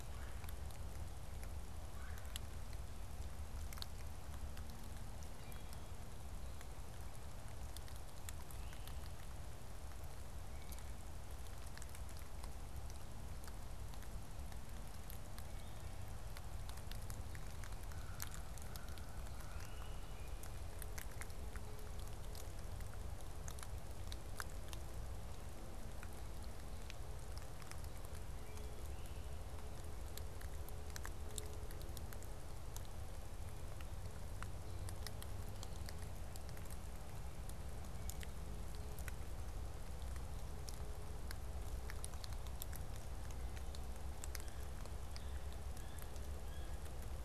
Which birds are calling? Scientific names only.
Melanerpes carolinus, Myiarchus crinitus, Corvus brachyrhynchos, Sphyrapicus varius